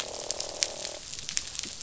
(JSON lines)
{"label": "biophony, croak", "recorder": "SoundTrap 500"}